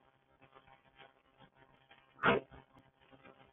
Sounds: Sneeze